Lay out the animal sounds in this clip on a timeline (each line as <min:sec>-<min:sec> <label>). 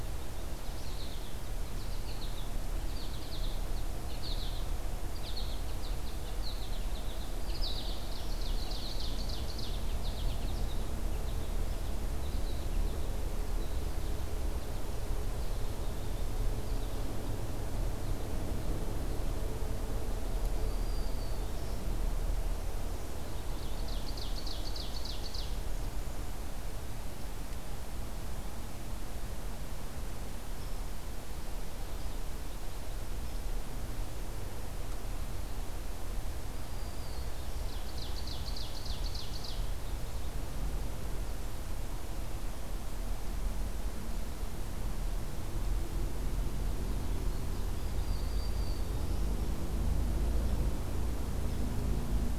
0:00.0-0:02.5 American Goldfinch (Spinus tristis)
0:02.8-0:03.6 American Goldfinch (Spinus tristis)
0:04.1-0:04.7 American Goldfinch (Spinus tristis)
0:05.1-0:08.1 American Goldfinch (Spinus tristis)
0:07.2-0:08.4 Black-throated Green Warbler (Setophaga virens)
0:08.1-0:09.8 Ovenbird (Seiurus aurocapilla)
0:09.8-0:10.7 American Goldfinch (Spinus tristis)
0:11.1-0:13.1 American Goldfinch (Spinus tristis)
0:20.4-0:21.9 Black-throated Green Warbler (Setophaga virens)
0:23.5-0:25.6 Ovenbird (Seiurus aurocapilla)
0:36.4-0:37.7 Black-throated Green Warbler (Setophaga virens)
0:37.5-0:39.7 Ovenbird (Seiurus aurocapilla)
0:47.7-0:49.2 Black-throated Green Warbler (Setophaga virens)